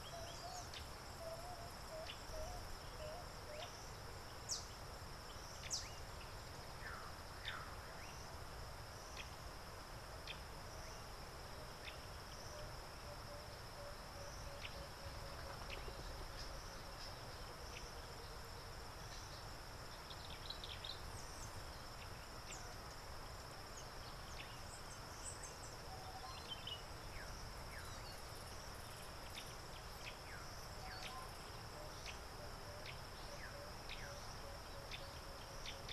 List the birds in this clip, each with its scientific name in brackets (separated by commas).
Common Bulbul (Pycnonotus barbatus), Yellow Bishop (Euplectes capensis), Emerald-spotted Wood-Dove (Turtur chalcospilos)